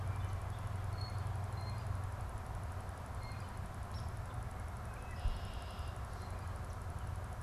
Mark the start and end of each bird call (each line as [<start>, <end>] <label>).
[0.78, 3.68] Blue Jay (Cyanocitta cristata)
[3.78, 4.18] Hairy Woodpecker (Dryobates villosus)
[4.68, 5.98] Red-winged Blackbird (Agelaius phoeniceus)